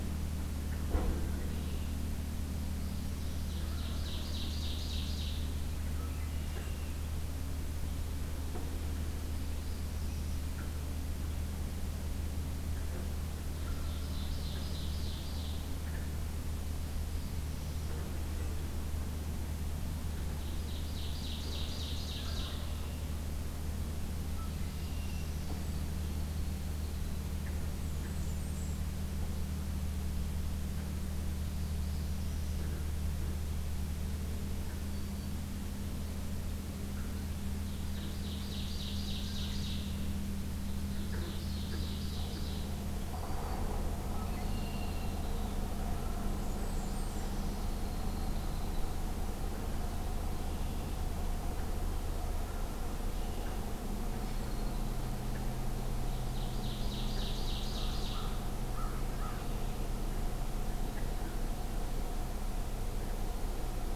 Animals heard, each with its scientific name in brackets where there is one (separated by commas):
Black-throated Green Warbler (Setophaga virens), Wild Turkey (Meleagris gallopavo), American Crow (Corvus brachyrhynchos), Northern Parula (Setophaga americana), Blackburnian Warbler (Setophaga fusca), Red-winged Blackbird (Agelaius phoeniceus), Ovenbird (Seiurus aurocapilla)